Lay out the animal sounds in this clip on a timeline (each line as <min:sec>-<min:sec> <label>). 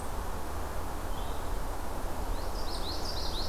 0:00.0-0:03.5 Red-eyed Vireo (Vireo olivaceus)
0:02.1-0:03.5 Common Yellowthroat (Geothlypis trichas)